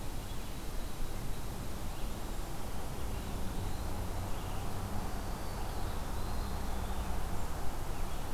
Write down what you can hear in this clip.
Eastern Wood-Pewee